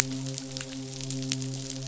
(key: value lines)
label: biophony, midshipman
recorder: SoundTrap 500